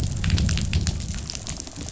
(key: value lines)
label: biophony, growl
recorder: SoundTrap 500